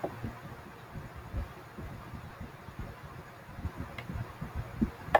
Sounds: Sigh